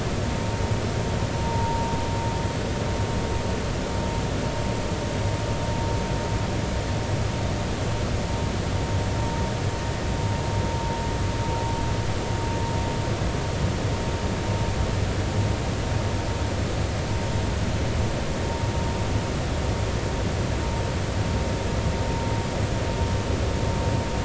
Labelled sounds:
1.4	1.9	vessel noise, 0.86 to 0.99 kHz

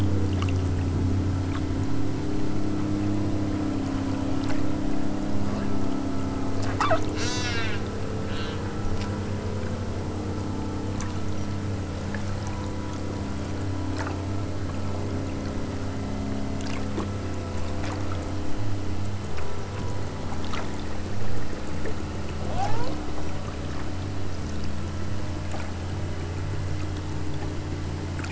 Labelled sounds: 7.1	7.8	killer whale, southern Alaska resident, 0.52 to 8.0 kHz
8.2	8.7	killer whale, southern Alaska resident, 0.82 to 6.3 kHz
22.4	23.2	killer whale, southern Alaska resident, 0.32 to 5.5 kHz

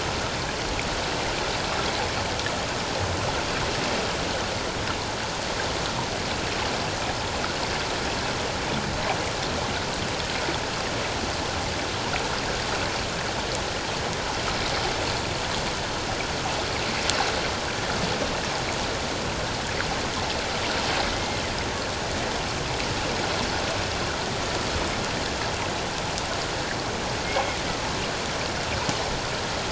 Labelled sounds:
27.2	27.6	killer whale, 2.1 to 2.2 kHz

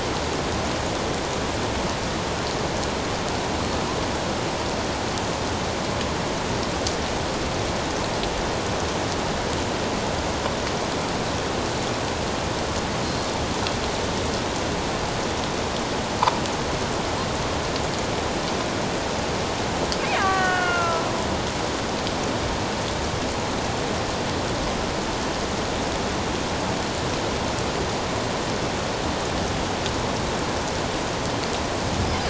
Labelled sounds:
20.2	20.7	killer whale, Bigg's (transient), call T07, 1.1 to 2.2 kHz
20.2	21.1	killer whale, Bigg's (transient), 1.1 to 3.1 kHz

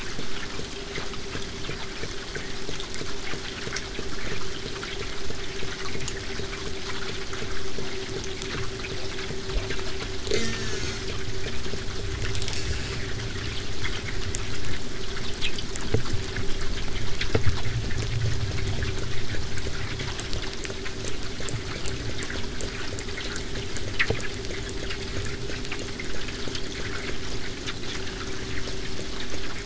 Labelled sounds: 10.3	11.1	killer whale, southern resident, J pod, call S04, 0.25 to 8.0 kHz
12.5	13.0	killer whale, southern resident, J pod, call S04, 0.46 to 8.0 kHz
19.6	25.3	killer whale, southern resident, 5.0 to 8.0 kHz

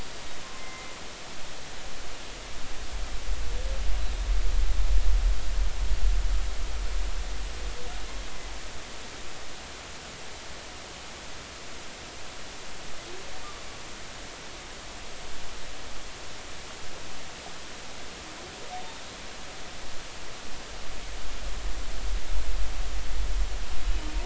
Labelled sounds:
0.6	0.9	humpback whale, 2.0 to 2.2 kHz
23.9	24.1	humpback whale, 2.8 to 3.1 kHz

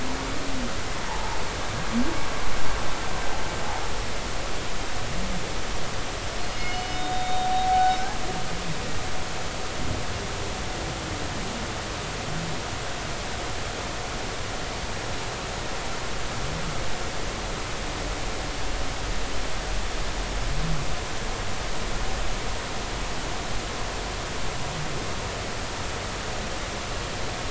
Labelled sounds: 1.1	1.4	humpback whale, 0.80 to 1.0 kHz
6.5	8.1	humpback whale, 0.80 to 5.4 kHz

